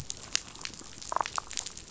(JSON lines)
{"label": "biophony, damselfish", "recorder": "SoundTrap 500"}